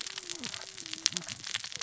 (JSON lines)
{"label": "biophony, cascading saw", "recorder": "SoundTrap 600 or HydroMoth"}